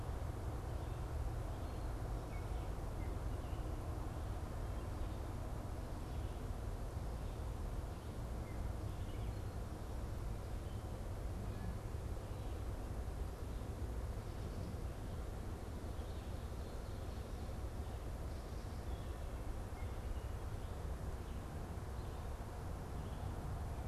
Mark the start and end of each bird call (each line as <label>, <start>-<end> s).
unidentified bird, 0.0-6.5 s
Gray Catbird (Dumetella carolinensis), 8.3-23.9 s
unidentified bird, 16.6-17.6 s